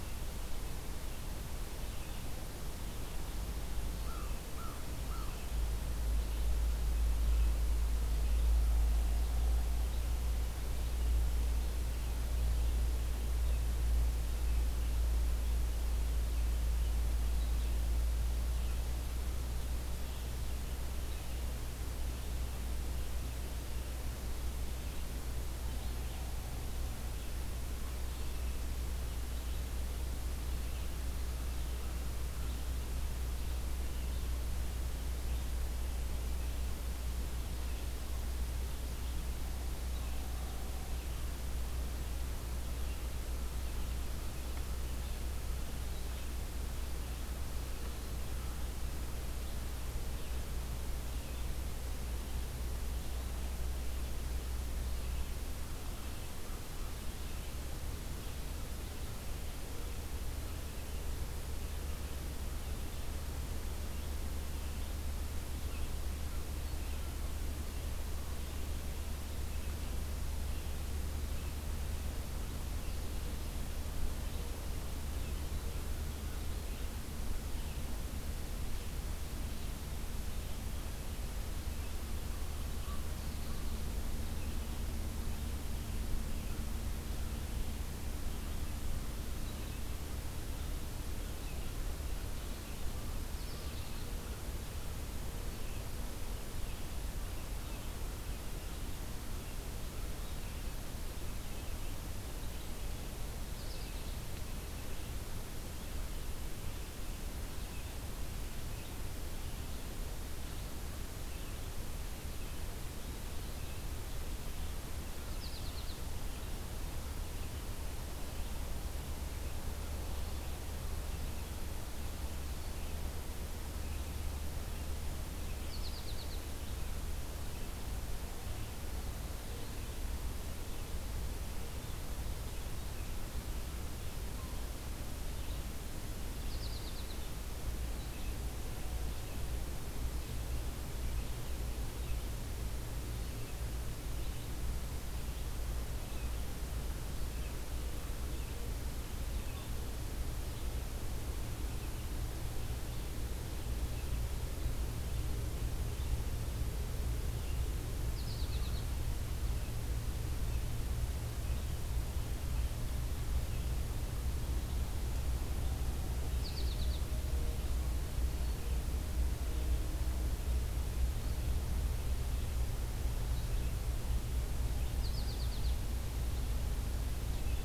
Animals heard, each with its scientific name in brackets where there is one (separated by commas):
Red-eyed Vireo (Vireo olivaceus), American Goldfinch (Spinus tristis), American Crow (Corvus brachyrhynchos)